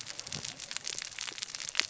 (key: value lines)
label: biophony, cascading saw
recorder: SoundTrap 600 or HydroMoth